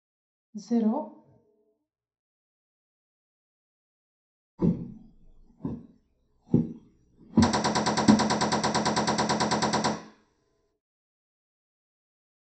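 At 0.54 seconds, a voice says "zero." Then at 4.57 seconds, someone walks. Meanwhile, at 7.4 seconds, the sound of gunfire rings out.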